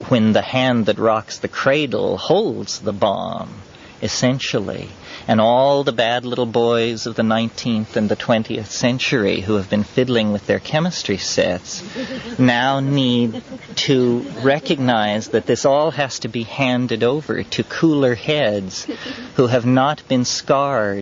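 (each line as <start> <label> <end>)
0.0 Someone is speaking in a distinctive style, exploring various topics. 21.0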